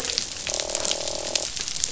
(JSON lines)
{"label": "biophony, croak", "recorder": "SoundTrap 500"}